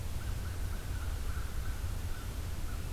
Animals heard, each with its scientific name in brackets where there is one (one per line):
American Crow (Corvus brachyrhynchos)